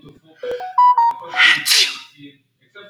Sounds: Sneeze